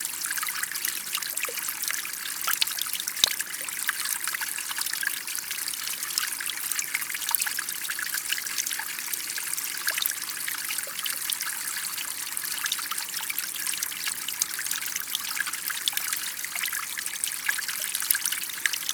Is water pouring?
yes